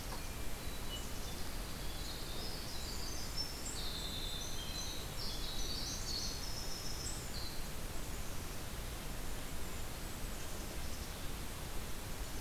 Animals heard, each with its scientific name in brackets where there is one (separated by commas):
Hermit Thrush (Catharus guttatus), Black-capped Chickadee (Poecile atricapillus), Winter Wren (Troglodytes hiemalis), Golden-crowned Kinglet (Regulus satrapa)